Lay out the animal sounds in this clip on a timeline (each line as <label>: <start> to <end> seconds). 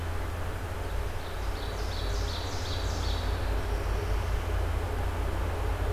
Ovenbird (Seiurus aurocapilla): 0.8 to 3.4 seconds